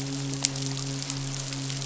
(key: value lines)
label: biophony, midshipman
recorder: SoundTrap 500